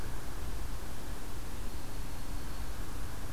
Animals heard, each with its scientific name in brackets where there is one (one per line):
Broad-winged Hawk (Buteo platypterus)